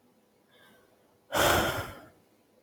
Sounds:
Sigh